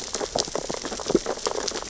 {"label": "biophony, sea urchins (Echinidae)", "recorder": "SoundTrap 600 or HydroMoth"}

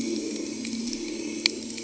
{"label": "anthrophony, boat engine", "recorder": "HydroMoth"}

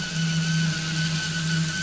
{"label": "anthrophony, boat engine", "recorder": "SoundTrap 500"}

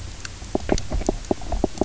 {"label": "biophony, knock croak", "recorder": "SoundTrap 300"}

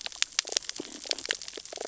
{"label": "biophony, damselfish", "recorder": "SoundTrap 600 or HydroMoth"}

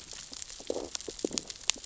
{"label": "biophony, growl", "recorder": "SoundTrap 600 or HydroMoth"}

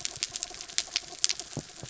{"label": "anthrophony, mechanical", "recorder": "SoundTrap 300"}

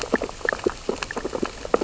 {"label": "biophony, sea urchins (Echinidae)", "recorder": "SoundTrap 600 or HydroMoth"}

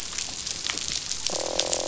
{"label": "biophony, croak", "recorder": "SoundTrap 500"}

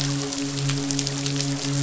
{"label": "biophony, midshipman", "recorder": "SoundTrap 500"}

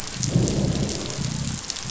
{"label": "biophony, growl", "recorder": "SoundTrap 500"}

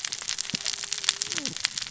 {"label": "biophony, cascading saw", "recorder": "SoundTrap 600 or HydroMoth"}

